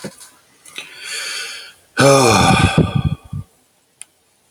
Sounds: Sigh